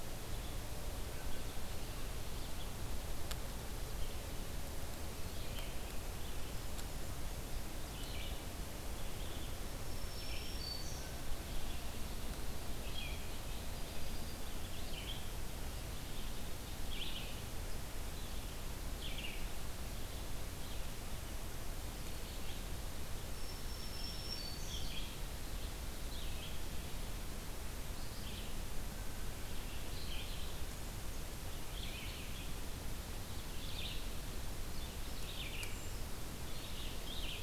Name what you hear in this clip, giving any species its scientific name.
Vireo olivaceus, Setophaga virens, Melospiza melodia, Certhia americana